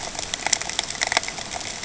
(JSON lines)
{"label": "ambient", "recorder": "HydroMoth"}